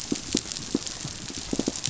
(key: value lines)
label: biophony, pulse
recorder: SoundTrap 500